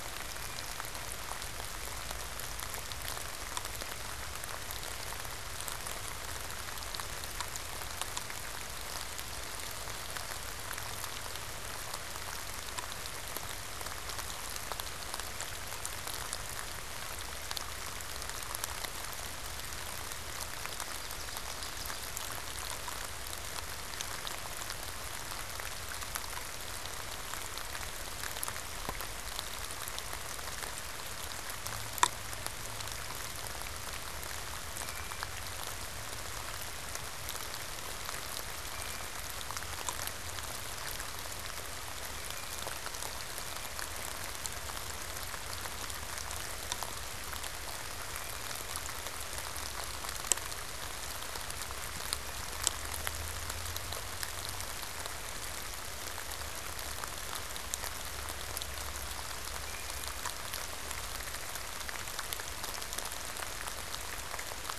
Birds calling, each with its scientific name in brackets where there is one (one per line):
Blue Jay (Cyanocitta cristata)